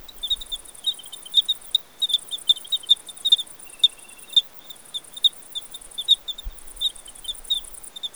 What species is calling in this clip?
Eugryllodes escalerae